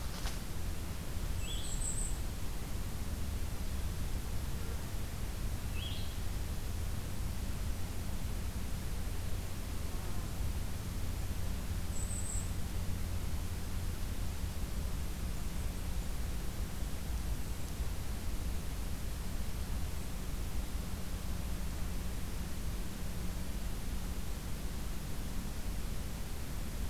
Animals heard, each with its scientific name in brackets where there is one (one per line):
Golden-crowned Kinglet (Regulus satrapa)
Blue-headed Vireo (Vireo solitarius)